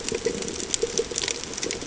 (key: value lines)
label: ambient
recorder: HydroMoth